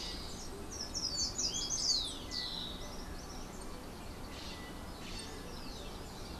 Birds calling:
Yellow-backed Oriole (Icterus chrysater)
Slate-throated Redstart (Myioborus miniatus)

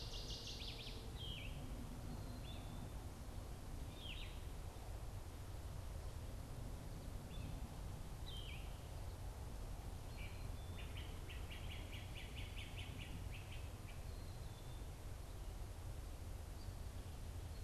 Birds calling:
Northern Waterthrush (Parkesia noveboracensis)
Yellow-throated Vireo (Vireo flavifrons)
Great Crested Flycatcher (Myiarchus crinitus)

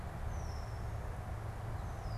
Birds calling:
Red-winged Blackbird (Agelaius phoeniceus)

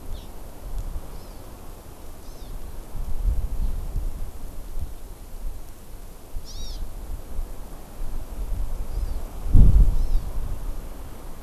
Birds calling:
Hawaii Amakihi (Chlorodrepanis virens)

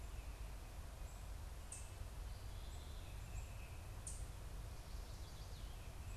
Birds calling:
unidentified bird

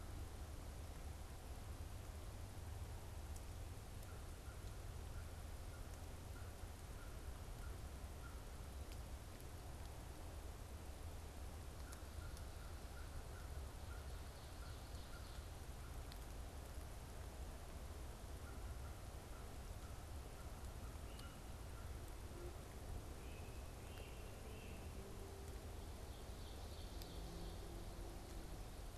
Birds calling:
Great Crested Flycatcher (Myiarchus crinitus)
American Crow (Corvus brachyrhynchos)

